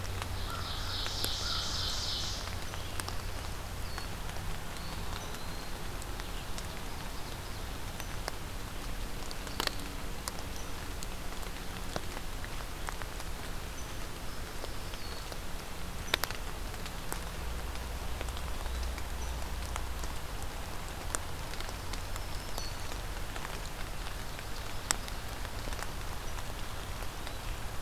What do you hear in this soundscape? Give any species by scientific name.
Corvus brachyrhynchos, Seiurus aurocapilla, Contopus virens, Setophaga virens